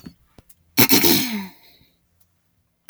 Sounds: Throat clearing